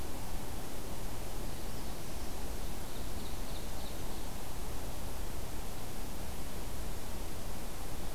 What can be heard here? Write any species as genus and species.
Setophaga caerulescens, Seiurus aurocapilla